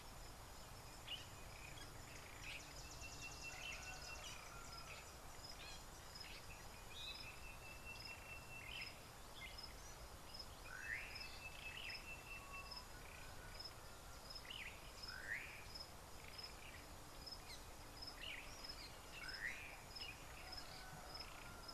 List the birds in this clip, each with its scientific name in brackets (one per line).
Slate-colored Boubou (Laniarius funebris)
Sulphur-breasted Bushshrike (Telophorus sulfureopectus)